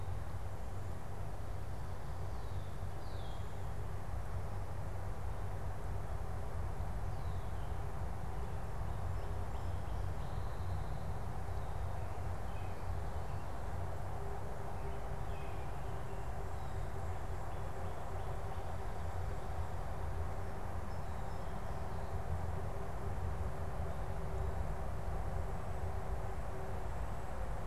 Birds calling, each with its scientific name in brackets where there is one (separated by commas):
Red-winged Blackbird (Agelaius phoeniceus), Northern Cardinal (Cardinalis cardinalis), American Robin (Turdus migratorius)